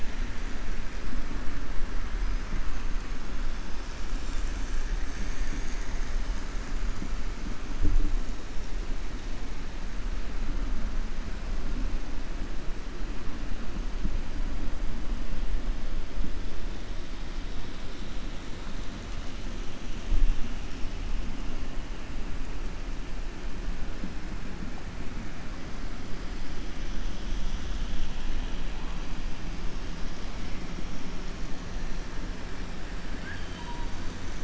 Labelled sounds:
33.1	33.8	killer whale, 1.5 to 3.9 kHz

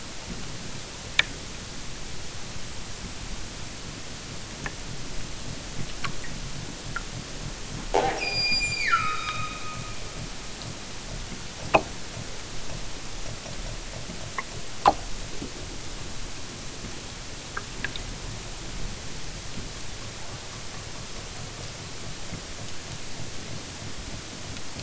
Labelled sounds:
8.1	9.9	killer whale, southern Alaska resident, 0.87 to 8.0 kHz

